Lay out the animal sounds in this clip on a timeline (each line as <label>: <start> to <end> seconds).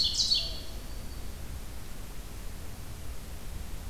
Ovenbird (Seiurus aurocapilla): 0.0 to 0.8 seconds
Mourning Dove (Zenaida macroura): 0.3 to 0.9 seconds
Black-throated Green Warbler (Setophaga virens): 0.6 to 1.5 seconds